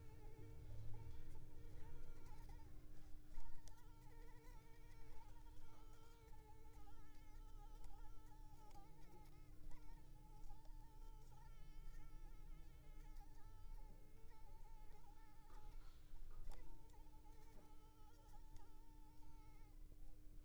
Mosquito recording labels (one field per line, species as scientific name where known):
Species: Anopheles arabiensis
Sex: female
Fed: unfed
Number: one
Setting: cup